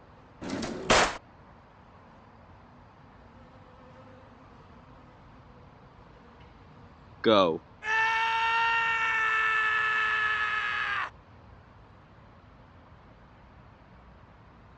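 At the start, a drawer opens or closes. About 7 seconds in, someone says "Go". Then about 8 seconds in, screaming is heard.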